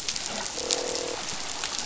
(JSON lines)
{"label": "biophony, croak", "recorder": "SoundTrap 500"}